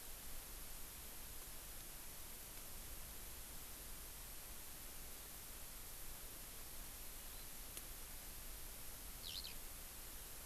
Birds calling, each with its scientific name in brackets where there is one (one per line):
Eurasian Skylark (Alauda arvensis)